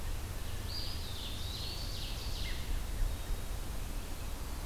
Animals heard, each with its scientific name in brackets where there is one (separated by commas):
Eastern Wood-Pewee (Contopus virens), Ovenbird (Seiurus aurocapilla)